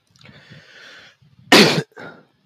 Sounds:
Sneeze